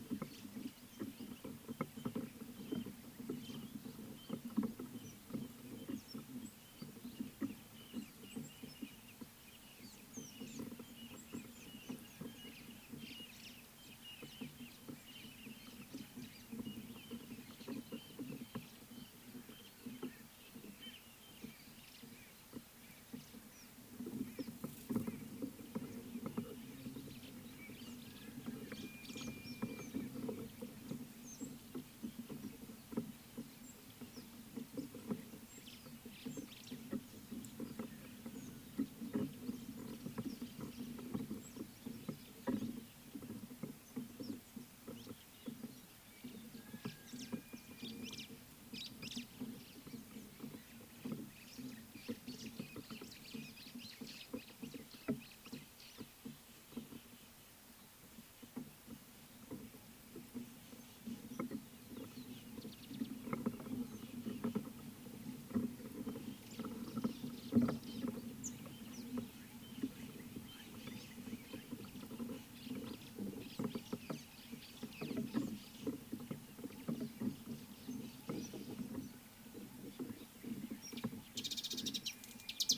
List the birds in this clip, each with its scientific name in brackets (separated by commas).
White-browed Sparrow-Weaver (Plocepasser mahali), Mariqua Sunbird (Cinnyris mariquensis), Rattling Cisticola (Cisticola chiniana), Crested Francolin (Ortygornis sephaena)